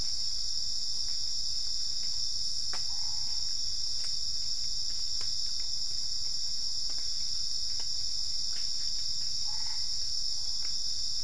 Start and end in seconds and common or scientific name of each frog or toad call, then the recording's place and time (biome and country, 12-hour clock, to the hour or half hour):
2.8	3.8	Boana albopunctata
9.3	10.2	Boana albopunctata
Cerrado, Brazil, 5am